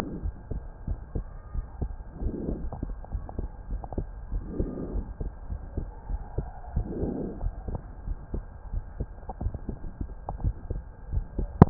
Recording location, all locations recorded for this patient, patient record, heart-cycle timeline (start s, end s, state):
pulmonary valve (PV)
aortic valve (AV)+pulmonary valve (PV)+tricuspid valve (TV)+mitral valve (MV)
#Age: Child
#Sex: Male
#Height: 127.0 cm
#Weight: 33.0 kg
#Pregnancy status: False
#Murmur: Absent
#Murmur locations: nan
#Most audible location: nan
#Systolic murmur timing: nan
#Systolic murmur shape: nan
#Systolic murmur grading: nan
#Systolic murmur pitch: nan
#Systolic murmur quality: nan
#Diastolic murmur timing: nan
#Diastolic murmur shape: nan
#Diastolic murmur grading: nan
#Diastolic murmur pitch: nan
#Diastolic murmur quality: nan
#Outcome: Normal
#Campaign: 2015 screening campaign
0.00	0.22	unannotated
0.22	0.34	S1
0.34	0.50	systole
0.50	0.62	S2
0.62	0.86	diastole
0.86	0.98	S1
0.98	1.14	systole
1.14	1.26	S2
1.26	1.54	diastole
1.54	1.66	S1
1.66	1.80	systole
1.80	1.94	S2
1.94	2.20	diastole
2.20	2.34	S1
2.34	2.46	systole
2.46	2.60	S2
2.60	3.68	unannotated
3.68	3.82	S1
3.82	3.94	systole
3.94	4.06	S2
4.06	4.29	diastole
4.29	4.44	S1
4.44	4.56	systole
4.56	4.68	S2
4.68	4.90	diastole
4.90	5.06	S1
5.06	5.19	systole
5.19	5.30	S2
5.30	5.48	diastole
5.48	5.62	S1
5.62	5.76	systole
5.76	5.88	S2
5.88	6.06	diastole
6.06	6.22	S1
6.22	6.34	systole
6.34	6.46	S2
6.46	6.74	diastole
6.74	6.88	S1
6.88	6.98	systole
6.98	7.14	S2
7.14	7.42	diastole
7.42	7.54	S1
7.54	7.66	systole
7.66	7.80	S2
7.80	8.06	diastole
8.06	8.18	S1
8.18	8.31	systole
8.31	8.44	S2
8.44	8.72	diastole
8.72	8.84	S1
8.84	8.96	systole
8.96	9.08	S2
9.08	9.42	diastole
9.42	9.54	S1
9.54	9.64	systole
9.64	9.74	S2
9.74	10.00	diastole
10.00	10.08	S1
10.08	11.70	unannotated